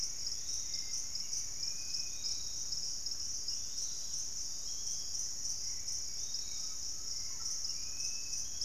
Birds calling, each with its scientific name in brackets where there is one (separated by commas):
Undulated Tinamou (Crypturellus undulatus), Dusky-capped Greenlet (Pachysylvia hypoxantha), Barred Forest-Falcon (Micrastur ruficollis), Piratic Flycatcher (Legatus leucophaius), Dusky-capped Flycatcher (Myiarchus tuberculifer), unidentified bird, Hauxwell's Thrush (Turdus hauxwelli)